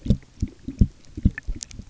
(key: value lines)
label: geophony, waves
recorder: SoundTrap 300